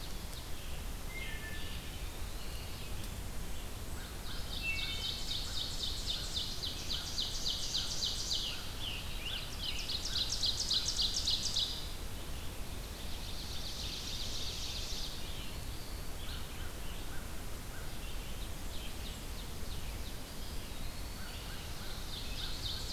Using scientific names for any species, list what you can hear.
Seiurus aurocapilla, Vireo olivaceus, Hylocichla mustelina, Contopus virens, Corvus brachyrhynchos, Piranga olivacea